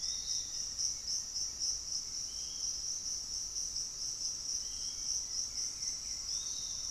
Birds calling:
Hauxwell's Thrush (Turdus hauxwelli), Thrush-like Wren (Campylorhynchus turdinus), Piratic Flycatcher (Legatus leucophaius), unidentified bird, Black-faced Antthrush (Formicarius analis)

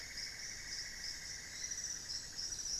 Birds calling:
Hauxwell's Thrush (Turdus hauxwelli), Cinnamon-throated Woodcreeper (Dendrexetastes rufigula)

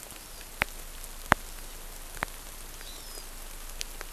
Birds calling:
Hawaiian Hawk (Buteo solitarius), Hawaii Amakihi (Chlorodrepanis virens)

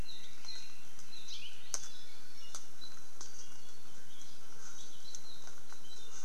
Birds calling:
Apapane (Himatione sanguinea), Hawaii Creeper (Loxops mana), Iiwi (Drepanis coccinea)

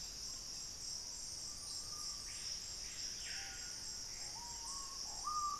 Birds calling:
Screaming Piha (Lipaugus vociferans), Gray Antbird (Cercomacra cinerascens)

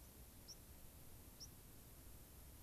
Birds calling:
White-crowned Sparrow (Zonotrichia leucophrys)

